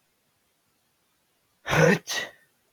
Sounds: Sneeze